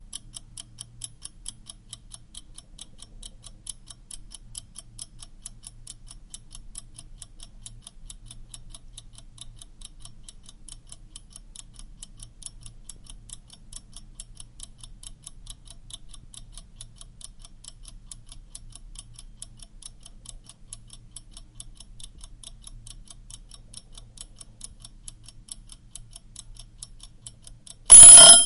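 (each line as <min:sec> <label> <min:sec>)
0:00.0 Continuous, repetitive ticking noise. 0:27.8
0:27.8 A loud ringing noise. 0:28.5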